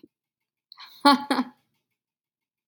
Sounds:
Laughter